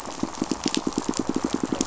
{"label": "biophony, pulse", "recorder": "SoundTrap 500"}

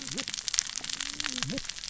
{"label": "biophony, cascading saw", "recorder": "SoundTrap 600 or HydroMoth"}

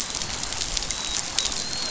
{"label": "biophony, dolphin", "recorder": "SoundTrap 500"}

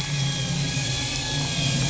{"label": "anthrophony, boat engine", "recorder": "SoundTrap 500"}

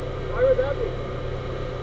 {"label": "anthrophony, boat engine", "recorder": "SoundTrap 300"}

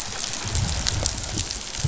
{"label": "biophony, growl", "recorder": "SoundTrap 500"}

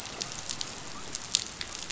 {"label": "biophony", "recorder": "SoundTrap 500"}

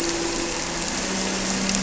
{"label": "anthrophony, boat engine", "recorder": "SoundTrap 300"}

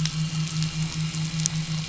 {"label": "anthrophony, boat engine", "recorder": "SoundTrap 500"}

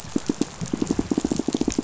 {"label": "biophony, pulse", "recorder": "SoundTrap 500"}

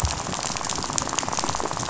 {"label": "biophony, rattle", "recorder": "SoundTrap 500"}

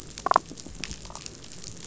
{"label": "biophony, damselfish", "recorder": "SoundTrap 500"}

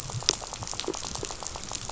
{"label": "biophony, rattle", "recorder": "SoundTrap 500"}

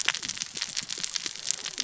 {"label": "biophony, cascading saw", "recorder": "SoundTrap 600 or HydroMoth"}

